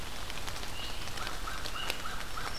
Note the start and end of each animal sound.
1.1s-2.6s: American Crow (Corvus brachyrhynchos)

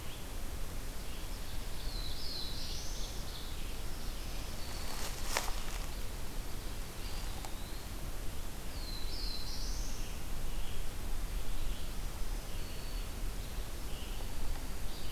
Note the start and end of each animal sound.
0.8s-3.7s: Ovenbird (Seiurus aurocapilla)
1.1s-3.5s: Black-throated Blue Warbler (Setophaga caerulescens)
3.8s-5.2s: Black-throated Green Warbler (Setophaga virens)
6.8s-8.0s: Eastern Wood-Pewee (Contopus virens)
8.1s-10.6s: Black-throated Blue Warbler (Setophaga caerulescens)
11.9s-13.3s: Black-throated Green Warbler (Setophaga virens)

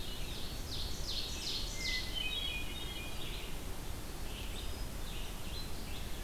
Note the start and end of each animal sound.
0.0s-5.8s: Red-eyed Vireo (Vireo olivaceus)
0.1s-2.0s: Ovenbird (Seiurus aurocapilla)
1.6s-3.3s: Hermit Thrush (Catharus guttatus)
4.3s-5.0s: Hermit Thrush (Catharus guttatus)

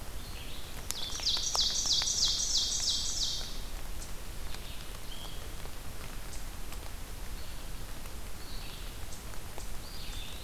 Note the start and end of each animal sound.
0.0s-5.1s: Red-eyed Vireo (Vireo olivaceus)
0.7s-3.8s: Ovenbird (Seiurus aurocapilla)
7.0s-10.4s: Red-eyed Vireo (Vireo olivaceus)
9.7s-10.4s: Eastern Wood-Pewee (Contopus virens)

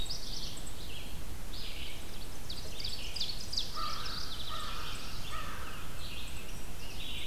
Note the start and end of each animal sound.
0.0s-0.5s: Black-throated Blue Warbler (Setophaga caerulescens)
0.0s-7.3s: Red-eyed Vireo (Vireo olivaceus)
1.9s-3.8s: Ovenbird (Seiurus aurocapilla)
3.5s-6.0s: American Crow (Corvus brachyrhynchos)
3.6s-4.9s: Mourning Warbler (Geothlypis philadelphia)
4.0s-5.5s: Black-throated Blue Warbler (Setophaga caerulescens)

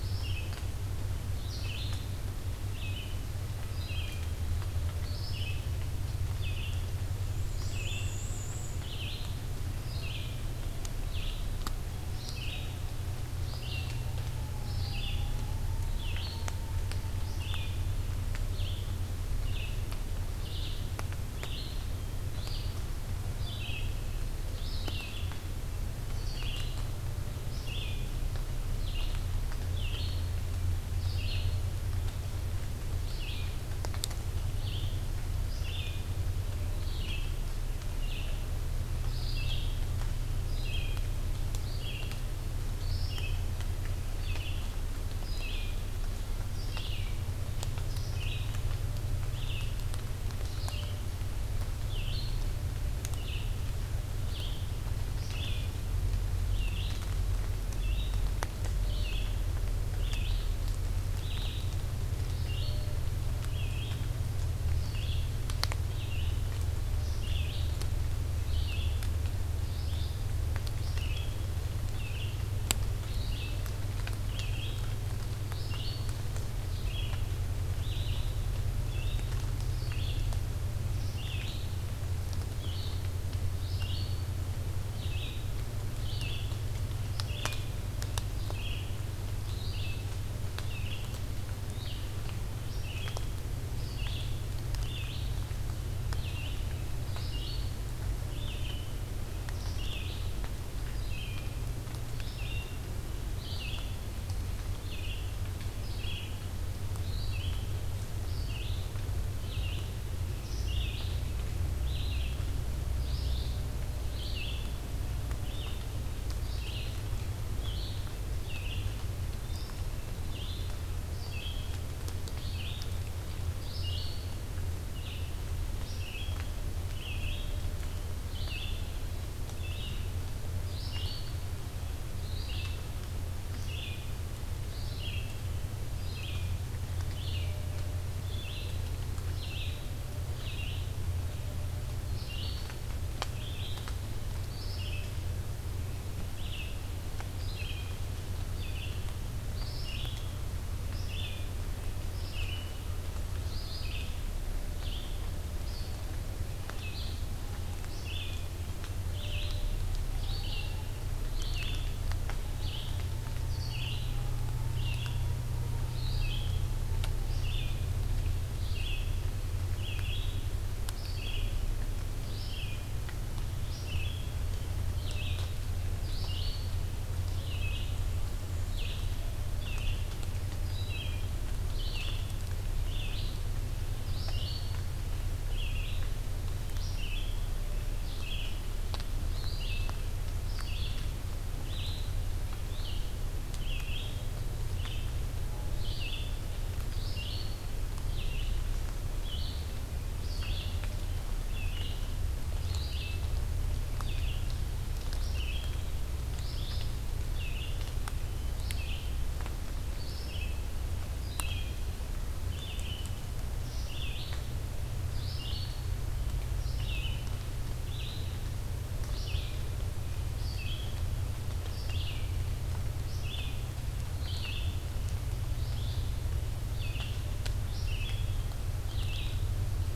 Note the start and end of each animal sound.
0.0s-78.4s: Red-eyed Vireo (Vireo olivaceus)
7.2s-8.8s: Black-and-white Warbler (Mniotilta varia)
78.7s-136.5s: Red-eyed Vireo (Vireo olivaceus)
136.9s-195.3s: Red-eyed Vireo (Vireo olivaceus)
195.6s-230.0s: Red-eyed Vireo (Vireo olivaceus)

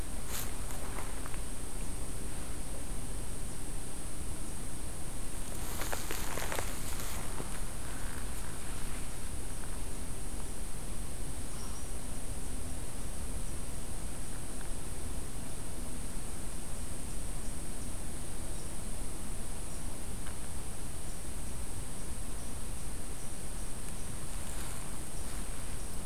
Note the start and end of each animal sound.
11.4s-12.0s: unknown mammal

